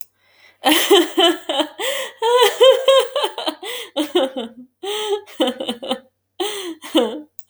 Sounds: Laughter